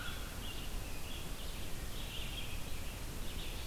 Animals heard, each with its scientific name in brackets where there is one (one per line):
Red-eyed Vireo (Vireo olivaceus)